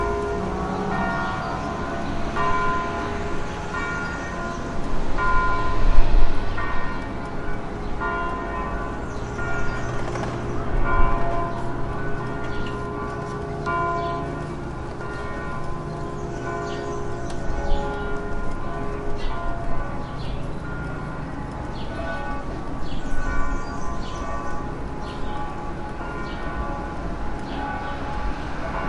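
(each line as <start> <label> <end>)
0.1 A church bell rings faintly in the distance while birds chirp softly. 28.9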